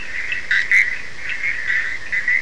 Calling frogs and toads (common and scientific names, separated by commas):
Bischoff's tree frog (Boana bischoffi), Cochran's lime tree frog (Sphaenorhynchus surdus)